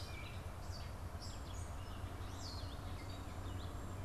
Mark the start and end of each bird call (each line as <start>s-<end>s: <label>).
0.0s-4.0s: Gray Catbird (Dumetella carolinensis)
0.0s-4.0s: Red-eyed Vireo (Vireo olivaceus)